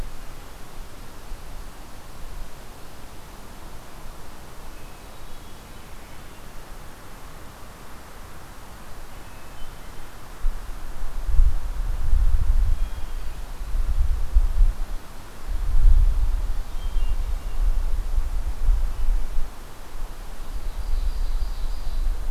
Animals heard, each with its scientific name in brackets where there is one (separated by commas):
Ovenbird (Seiurus aurocapilla), Hermit Thrush (Catharus guttatus)